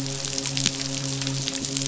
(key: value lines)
label: biophony, midshipman
recorder: SoundTrap 500